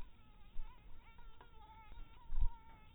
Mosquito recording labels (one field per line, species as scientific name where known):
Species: mosquito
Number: one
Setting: cup